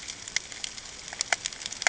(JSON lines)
{"label": "ambient", "recorder": "HydroMoth"}